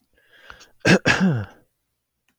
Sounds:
Throat clearing